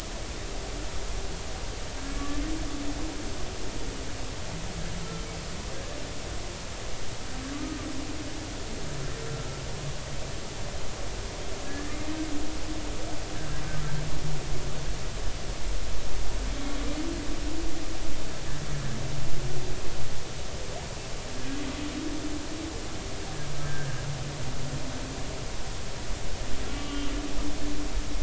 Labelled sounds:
5.7	6.0	humpback whale, 1.6 to 1.8 kHz
7.5	7.8	humpback whale, 1.1 to 1.3 kHz
11.6	11.9	humpback whale, 1.6 to 1.9 kHz
23.6	24.0	humpback whale, 1.5 to 1.8 kHz
26.7	27.1	humpback whale, 2.8 to 2.9 kHz

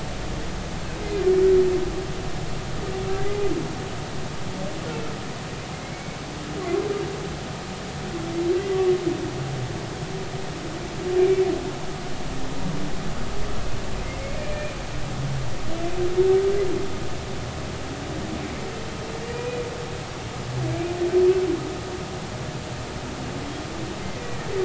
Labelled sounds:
5.8	6.2	humpback whale, 2.1 to 2.3 kHz
14.1	14.8	humpback whale, 2.0 to 2.5 kHz
24.1	24.4	humpback whale, 1.9 to 2.0 kHz

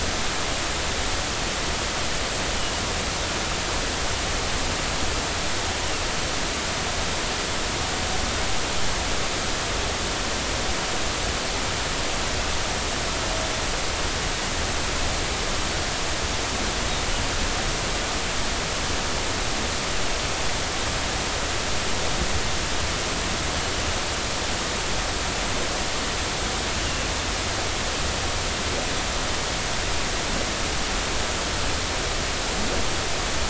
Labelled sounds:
26.8	27.1	Pacific white-sided dolphin, 2.7 to 3.0 kHz

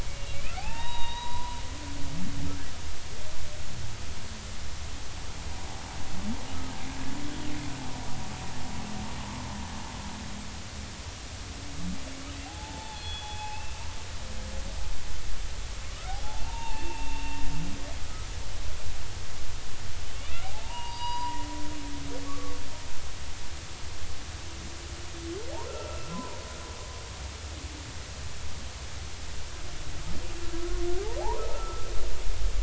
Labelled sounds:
0.0	1.6	humpback whale, 0.80 to 3.9 kHz
9.2	9.5	humpback whale, 0.99 to 1.2 kHz
12.5	13.8	humpback whale, 0.80 to 3.6 kHz
15.8	17.4	humpback whale, 0.80 to 2.8 kHz
20.2	21.5	humpback whale, 0.80 to 4.9 kHz
22.2	22.6	humpback whale, 1.1 to 1.3 kHz
25.7	26.4	humpback whale, 0.90 to 1.4 kHz
31.4	31.9	humpback whale, 1.2 to 1.4 kHz

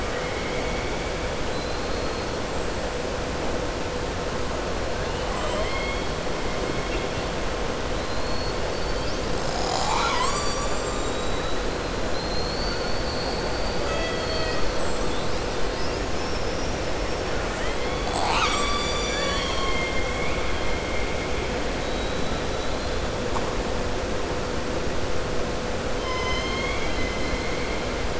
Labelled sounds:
0.0	1.0	killer whale, southern resident, 1.2 to 3.2 kHz
1.4	2.2	killer whale, southern resident, 3.9 to 4.4 kHz
5.0	6.1	killer whale, southern resident, 0.58 to 4.2 kHz
8.1	8.6	killer whale, southern resident, 4.1 to 4.6 kHz
15.7	16.8	killer whale, southern resident, 4.8 to 6.3 kHz
26.0	27.1	killer whale, southern resident, 1.0 to 7.2 kHz

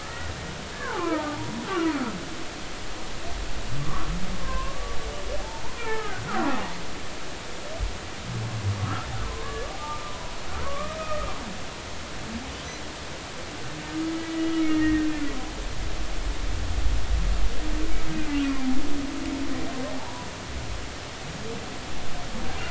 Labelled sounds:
0.0	2.0	humpback whale, 0.80 to 2.0 kHz
3.8	4.8	humpback whale, 0.96 to 1.6 kHz
5.4	6.6	humpback whale, 0.80 to 2.4 kHz
8.8	10.4	humpback whale, 0.80 to 1.8 kHz
10.6	11.3	humpback whale, 1.1 to 1.3 kHz
14.6	15.1	humpback whale, 1.8 to 2.9 kHz
18.4	18.7	humpback whale, 2.3 to 2.5 kHz
19.9	20.3	humpback whale, 0.80 to 1.0 kHz

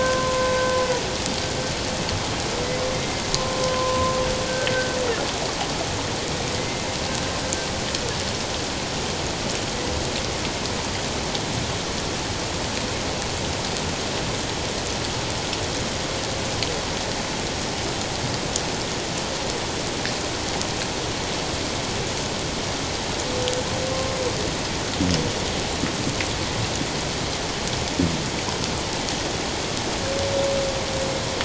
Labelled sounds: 2.9	3.2	humpback whale, 2.0 to 2.2 kHz
3.6	4.1	humpback whale, 0.91 to 1.1 kHz
6.5	6.9	humpback whale, 2.0 to 2.2 kHz

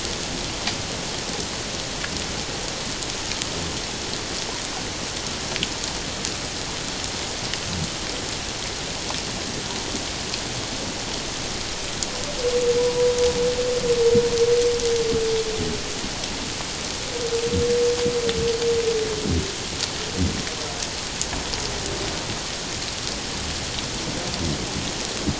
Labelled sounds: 12.8	13.1	humpback whale, 0.91 to 1.0 kHz

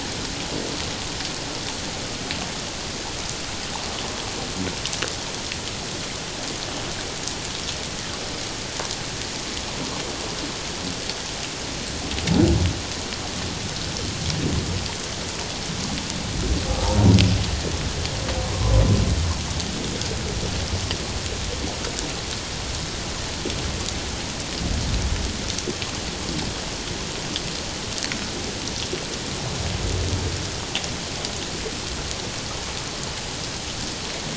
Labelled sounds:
16.8	17.1	humpback whale, 0.81 to 0.97 kHz
18.5	18.8	humpback whale, 0.97 to 1.2 kHz

